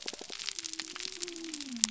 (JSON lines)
{"label": "biophony", "recorder": "SoundTrap 300"}